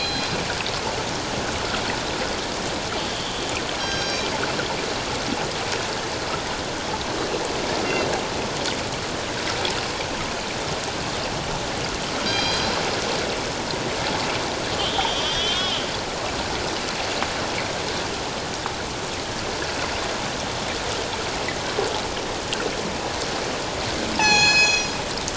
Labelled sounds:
3.1	3.4	killer whale, northern resident, A clan, call N03, 2.9 to 3.3 kHz
3.8	4.3	killer whale, northern resident, G clan, 1.5 to 6.4 kHz
12.3	12.7	killer whale, northern resident, G clan, 2.3 to 5.8 kHz
14.7	15.8	killer whale, northern resident, A clan, 2.8 to 3.9 kHz
24.1	25.0	killer whale, northern resident, G clan, 0.78 to 7.7 kHz

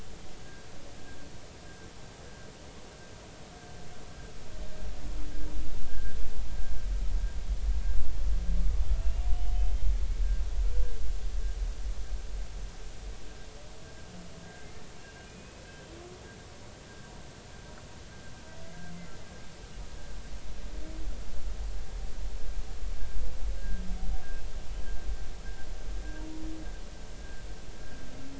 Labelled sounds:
5.9	6.1	humpback whale, 1.5 to 1.7 kHz
9.0	9.9	humpback whale, 2.6 to 3.2 kHz
15.3	15.6	humpback whale, 2.4 to 2.6 kHz
23.6	23.8	humpback whale, 1.5 to 1.7 kHz

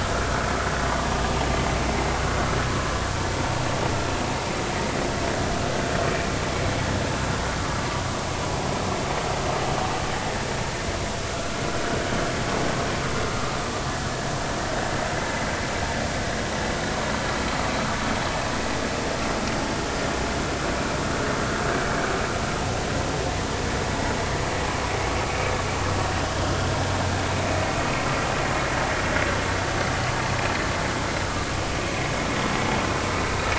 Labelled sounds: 11.3	11.6	vessel noise, 1.3 to 1.5 kHz
17.8	18.0	vessel noise, 1.1 to 1.6 kHz

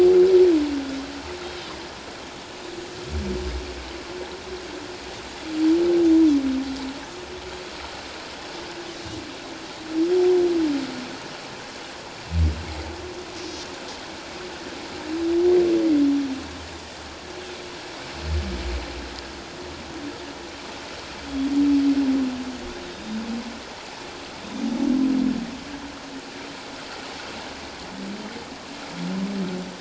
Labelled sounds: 1.4	1.7	Pacific white-sided dolphin, 3.0 to 3.8 kHz
22.8	23.2	Pacific white-sided dolphin, 3.6 to 4.0 kHz

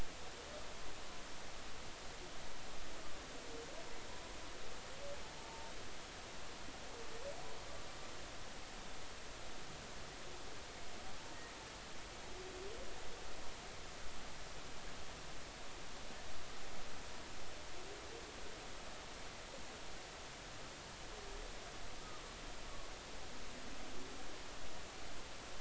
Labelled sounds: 5.4	5.7	humpback whale, 0.83 to 0.96 kHz

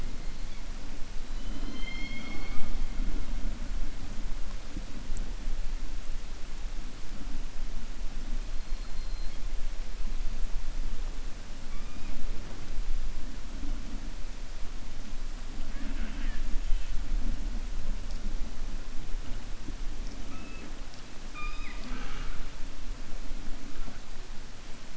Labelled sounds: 1.3	2.8	killer whale, 0.20 to 5.4 kHz

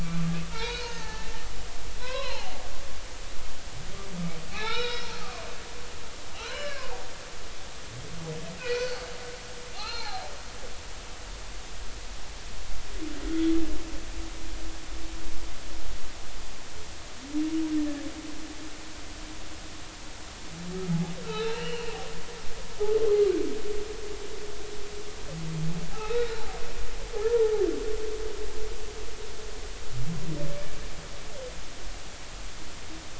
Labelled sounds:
0.5	1.3	humpback whale, 0.83 to 4.4 kHz
2.0	2.6	humpback whale, 0.80 to 4.4 kHz
4.5	5.5	humpback whale, 0.80 to 5.6 kHz
6.3	6.9	humpback whale, 0.80 to 4.2 kHz
8.6	9.1	humpback whale, 1.3 to 4.7 kHz
9.8	10.3	humpback whale, 0.80 to 4.5 kHz
21.2	21.9	humpback whale, 0.80 to 4.2 kHz
25.9	26.4	humpback whale, 1.2 to 3.9 kHz

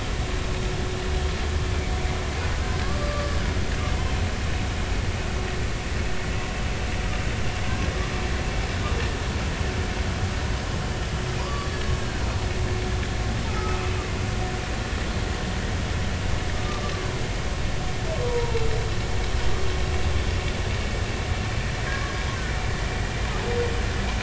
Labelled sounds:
2.6	3.3	humpback whale, 1.1 to 1.7 kHz
11.4	11.7	humpback whale, 0.93 to 4.6 kHz
13.5	13.8	humpback whale, 1.2 to 1.3 kHz
18.2	18.6	humpback whale, 0.86 to 0.99 kHz

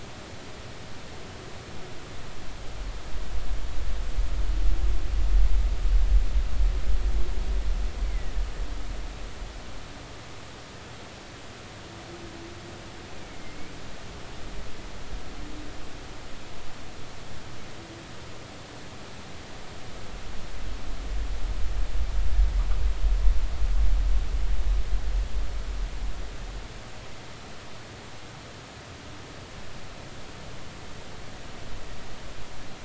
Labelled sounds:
8.0	8.3	humpback whale, 1.8 to 2.3 kHz
13.2	13.6	humpback whale, 2.0 to 2.4 kHz

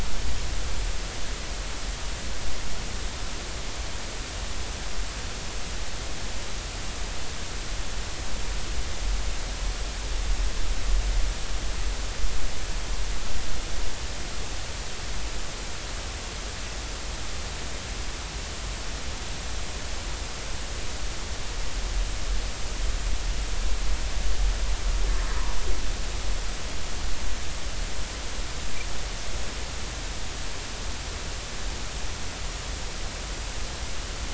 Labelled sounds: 25.3	25.5	humpback whale, 0.90 to 1.2 kHz

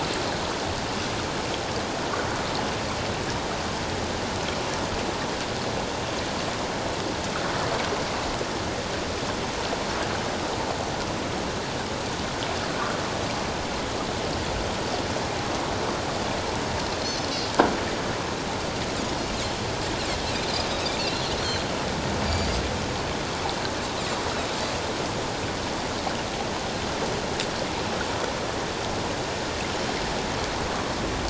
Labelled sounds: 21.0	21.2	Pacific white-sided dolphin, 2.6 to 2.8 kHz
22.3	22.6	Pacific white-sided dolphin, 4.5 to 4.8 kHz

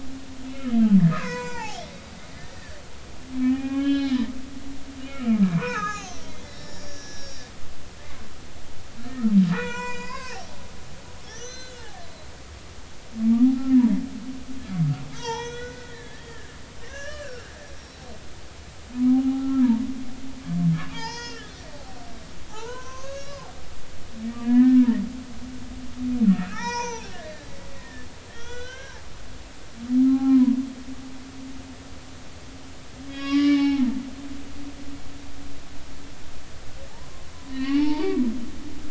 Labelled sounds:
1.1	2.8	humpback whale, 0.80 to 7.5 kHz
3.4	4.3	humpback whale, 0.80 to 4.3 kHz
5.1	7.4	humpback whale, 0.80 to 7.2 kHz
9.5	10.4	humpback whale, 0.86 to 7.5 kHz
11.2	12.0	humpback whale, 0.80 to 6.6 kHz
13.5	13.8	humpback whale, 1.2 to 1.4 kHz
15.1	17.5	humpback whale, 0.83 to 6.3 kHz
19.0	19.7	humpback whale, 0.80 to 1.4 kHz
20.9	21.6	humpback whale, 0.83 to 6.7 kHz
22.5	23.4	humpback whale, 0.80 to 6.8 kHz
24.4	24.9	humpback whale, 1.5 to 1.9 kHz
26.3	27.5	humpback whale, 0.80 to 6.5 kHz
27.8	29.0	humpback whale, 1.3 to 6.0 kHz
30.0	30.5	humpback whale, 0.80 to 1.4 kHz
33.0	33.9	humpback whale, 0.80 to 5.7 kHz
36.9	38.2	humpback whale, 0.80 to 4.7 kHz

